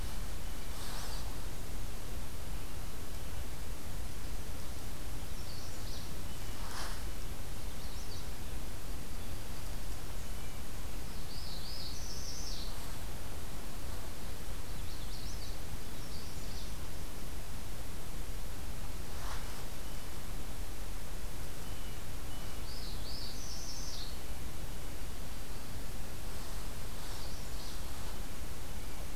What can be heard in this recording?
Magnolia Warbler, Northern Parula, Blue Jay